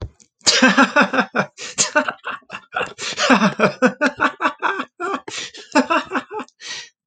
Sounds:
Laughter